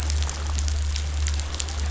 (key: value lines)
label: anthrophony, boat engine
recorder: SoundTrap 500